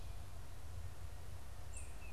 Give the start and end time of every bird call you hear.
0.0s-2.1s: unidentified bird
1.5s-2.1s: Tufted Titmouse (Baeolophus bicolor)

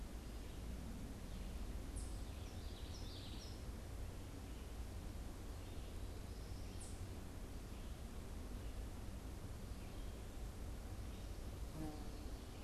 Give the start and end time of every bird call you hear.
2.3s-3.7s: Common Yellowthroat (Geothlypis trichas)

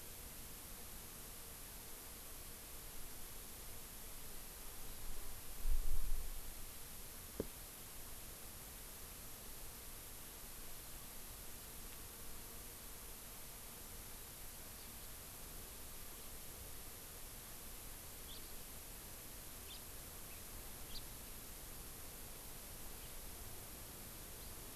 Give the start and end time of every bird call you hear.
18.3s-18.4s: House Finch (Haemorhous mexicanus)
19.7s-19.8s: House Finch (Haemorhous mexicanus)
20.9s-21.1s: House Finch (Haemorhous mexicanus)
23.0s-23.2s: House Finch (Haemorhous mexicanus)

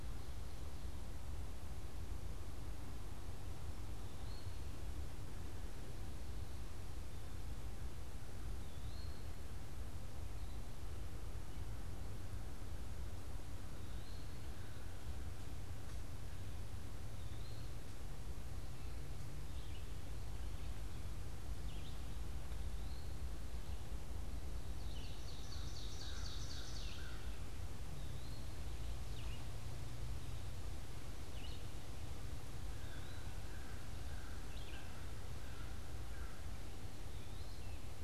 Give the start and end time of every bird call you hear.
3.6s-38.0s: Eastern Wood-Pewee (Contopus virens)
19.2s-32.0s: Red-eyed Vireo (Vireo olivaceus)
24.6s-27.5s: Ovenbird (Seiurus aurocapilla)
32.5s-36.9s: American Crow (Corvus brachyrhynchos)

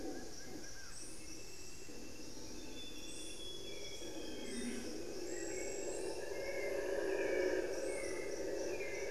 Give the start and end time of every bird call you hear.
0.0s-1.2s: Plain-winged Antshrike (Thamnophilus schistaceus)
0.0s-9.1s: Hauxwell's Thrush (Turdus hauxwelli)
2.4s-5.0s: Amazonian Grosbeak (Cyanoloxia rothschildii)

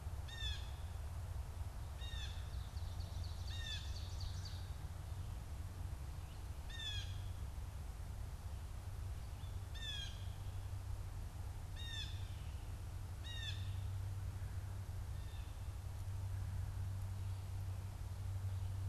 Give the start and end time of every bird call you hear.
0.0s-2.3s: Blue Jay (Cyanocitta cristata)
2.5s-4.8s: Ovenbird (Seiurus aurocapilla)
3.4s-3.9s: Blue Jay (Cyanocitta cristata)
6.6s-7.2s: Blue Jay (Cyanocitta cristata)
9.6s-10.3s: Blue Jay (Cyanocitta cristata)
11.7s-14.0s: Blue Jay (Cyanocitta cristata)

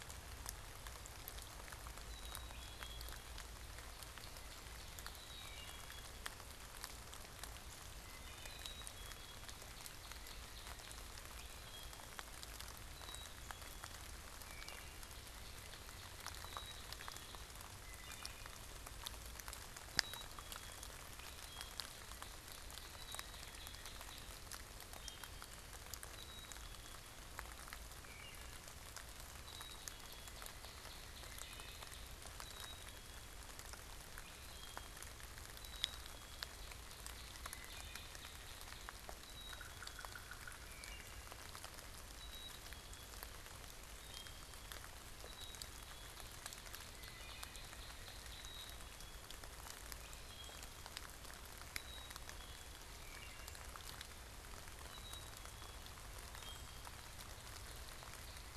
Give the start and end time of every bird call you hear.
2.0s-3.3s: Black-capped Chickadee (Poecile atricapillus)
3.0s-5.6s: Northern Cardinal (Cardinalis cardinalis)
5.1s-6.2s: Black-capped Chickadee (Poecile atricapillus)
8.3s-9.8s: Black-capped Chickadee (Poecile atricapillus)
8.5s-11.3s: Northern Cardinal (Cardinalis cardinalis)
11.1s-12.2s: Wood Thrush (Hylocichla mustelina)
12.7s-14.2s: Black-capped Chickadee (Poecile atricapillus)
14.2s-15.2s: Wood Thrush (Hylocichla mustelina)
16.2s-17.5s: Black-capped Chickadee (Poecile atricapillus)
17.6s-18.6s: Wood Thrush (Hylocichla mustelina)
19.8s-21.0s: Black-capped Chickadee (Poecile atricapillus)
21.1s-22.0s: Wood Thrush (Hylocichla mustelina)
22.0s-24.7s: Northern Cardinal (Cardinalis cardinalis)
24.7s-25.7s: Wood Thrush (Hylocichla mustelina)
25.9s-27.3s: Black-capped Chickadee (Poecile atricapillus)
27.7s-28.8s: Wood Thrush (Hylocichla mustelina)
29.2s-30.5s: Black-capped Chickadee (Poecile atricapillus)
29.2s-32.4s: Northern Cardinal (Cardinalis cardinalis)
31.1s-32.2s: Wood Thrush (Hylocichla mustelina)
32.3s-33.5s: Black-capped Chickadee (Poecile atricapillus)
34.2s-35.0s: Wood Thrush (Hylocichla mustelina)
35.4s-36.7s: Black-capped Chickadee (Poecile atricapillus)
36.3s-39.2s: Northern Cardinal (Cardinalis cardinalis)
37.3s-38.4s: Wood Thrush (Hylocichla mustelina)
39.0s-40.2s: Black-capped Chickadee (Poecile atricapillus)
39.3s-40.7s: Yellow-bellied Sapsucker (Sphyrapicus varius)
40.5s-41.3s: Wood Thrush (Hylocichla mustelina)
42.0s-43.2s: Black-capped Chickadee (Poecile atricapillus)
43.8s-46.2s: Black-capped Chickadee (Poecile atricapillus)
45.6s-49.2s: Northern Cardinal (Cardinalis cardinalis)
46.8s-47.7s: Wood Thrush (Hylocichla mustelina)
48.1s-49.4s: Black-capped Chickadee (Poecile atricapillus)
50.0s-50.8s: Wood Thrush (Hylocichla mustelina)
51.5s-52.9s: Black-capped Chickadee (Poecile atricapillus)
52.8s-53.7s: Wood Thrush (Hylocichla mustelina)
54.7s-56.0s: Black-capped Chickadee (Poecile atricapillus)
56.1s-57.1s: Wood Thrush (Hylocichla mustelina)

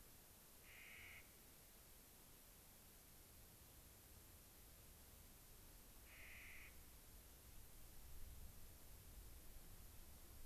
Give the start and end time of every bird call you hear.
0.6s-1.3s: Clark's Nutcracker (Nucifraga columbiana)
6.0s-6.7s: Clark's Nutcracker (Nucifraga columbiana)

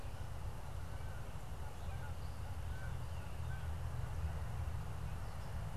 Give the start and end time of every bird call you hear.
0.0s-3.9s: Canada Goose (Branta canadensis)

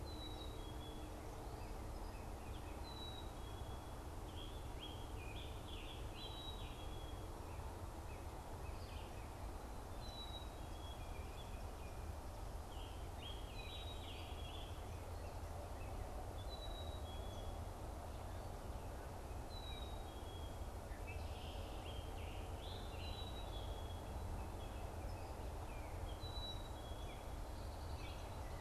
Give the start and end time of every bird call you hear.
0.0s-1.2s: Black-capped Chickadee (Poecile atricapillus)
2.8s-3.8s: Black-capped Chickadee (Poecile atricapillus)
4.3s-7.1s: Scarlet Tanager (Piranga olivacea)
6.1s-7.2s: Black-capped Chickadee (Poecile atricapillus)
9.8s-11.1s: Black-capped Chickadee (Poecile atricapillus)
12.5s-14.9s: Scarlet Tanager (Piranga olivacea)
13.6s-14.8s: Black-capped Chickadee (Poecile atricapillus)
16.4s-17.6s: Black-capped Chickadee (Poecile atricapillus)
19.4s-20.6s: Black-capped Chickadee (Poecile atricapillus)
20.8s-23.3s: Scarlet Tanager (Piranga olivacea)
22.9s-24.1s: Black-capped Chickadee (Poecile atricapillus)
26.1s-27.3s: Black-capped Chickadee (Poecile atricapillus)
27.4s-28.6s: Red-winged Blackbird (Agelaius phoeniceus)

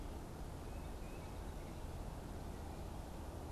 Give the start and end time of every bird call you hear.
0.3s-1.5s: Tufted Titmouse (Baeolophus bicolor)

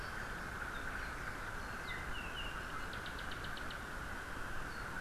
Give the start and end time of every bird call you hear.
0.0s-3.7s: Apapane (Himatione sanguinea)
4.7s-4.9s: Apapane (Himatione sanguinea)

